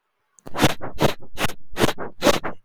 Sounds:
Sniff